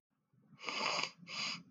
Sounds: Sniff